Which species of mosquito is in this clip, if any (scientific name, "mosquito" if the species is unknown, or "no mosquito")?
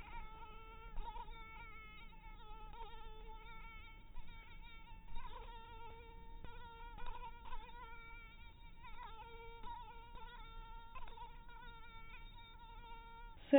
mosquito